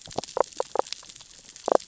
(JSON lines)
{"label": "biophony, damselfish", "recorder": "SoundTrap 600 or HydroMoth"}